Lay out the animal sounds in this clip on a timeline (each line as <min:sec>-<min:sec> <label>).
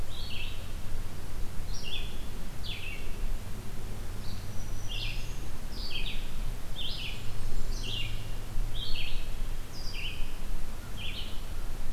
0:00.0-0:11.8 Red-eyed Vireo (Vireo olivaceus)
0:04.0-0:05.6 Black-throated Green Warbler (Setophaga virens)
0:06.9-0:08.2 Blackburnian Warbler (Setophaga fusca)
0:10.7-0:11.8 American Crow (Corvus brachyrhynchos)